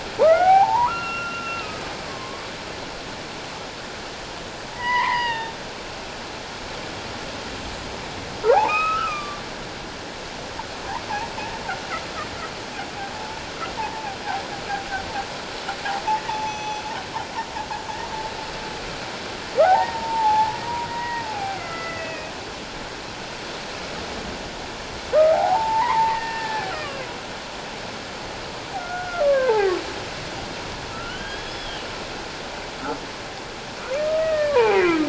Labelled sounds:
0.2	2.5	humpback whale, 0.78 to 5.6 kHz
4.7	5.6	humpback whale, 0.84 to 5.0 kHz
8.4	9.4	humpback whale, 0.78 to 3.9 kHz
13.1	14.2	humpback whale, 0.78 to 1.0 kHz
16.3	16.8	humpback whale, 0.81 to 6.1 kHz
19.6	20.6	humpback whale, 0.78 to 1.6 kHz
20.9	22.3	humpback whale, 0.78 to 2.7 kHz
25.3	27.0	humpback whale, 0.78 to 2.8 kHz
28.8	29.7	humpback whale, 0.78 to 1.7 kHz
30.9	31.9	humpback whale, 1.3 to 5.2 kHz
34.0	35.0	humpback whale, 0.78 to 2.6 kHz

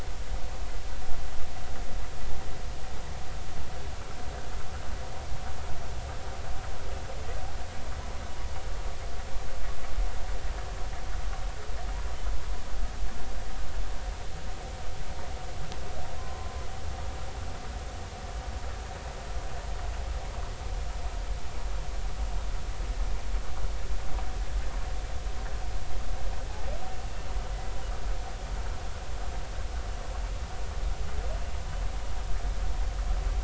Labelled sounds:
16.2	16.5	humpback whale, 0.96 to 1.1 kHz

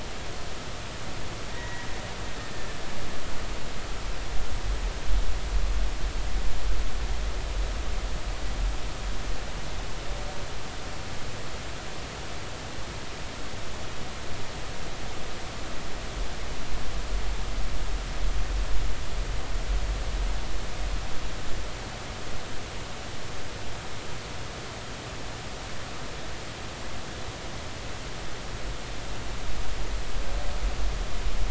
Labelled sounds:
1.5	1.9	killer whale, Bigg's (transient), 1.8 to 2.0 kHz

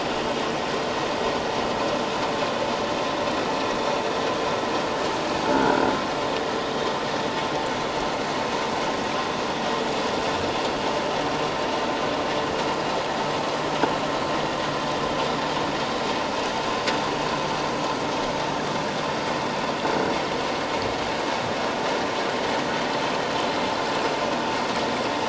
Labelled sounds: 5.5	5.9	croaking sound likely from a nearby submerged object, 1.3 to 1.6 kHz

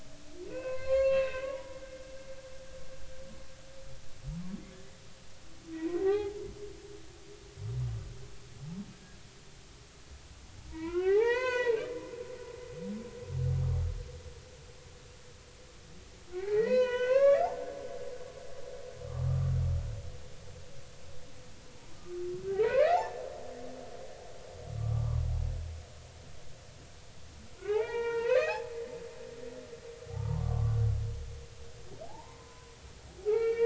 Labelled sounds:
0.5	1.8	humpback whale, 0.90 to 4.4 kHz
5.7	6.4	humpback whale, 0.80 to 2.1 kHz
10.7	11.8	humpback whale, 0.80 to 6.8 kHz
16.3	17.5	humpback whale, 0.80 to 6.4 kHz
19.0	19.5	humpback whale, 1.1 to 1.4 kHz
21.9	22.2	humpback whale, 1.15 to 1.25 kHz
22.5	24.0	humpback whale, 0.80 to 2.7 kHz
24.8	25.2	humpback whale, 0.93 to 1.3 kHz
27.7	29.6	humpback whale, 0.80 to 2.9 kHz
30.1	30.8	humpback whale, 0.80 to 1.2 kHz
32.0	32.7	humpback whale, 0.80 to 1.1 kHz
33.2	33.6	humpback whale, 1.2 to 4.7 kHz

